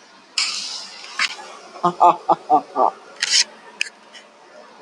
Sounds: Laughter